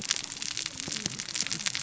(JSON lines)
{"label": "biophony, cascading saw", "recorder": "SoundTrap 600 or HydroMoth"}